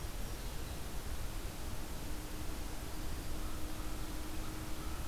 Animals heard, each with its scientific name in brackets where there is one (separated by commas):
American Crow (Corvus brachyrhynchos)